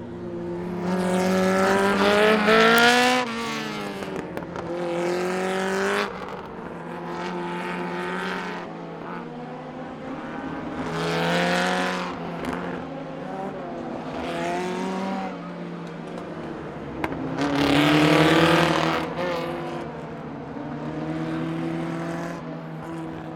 Can more than one machine be heard?
yes